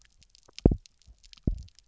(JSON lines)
{"label": "biophony, double pulse", "recorder": "SoundTrap 300"}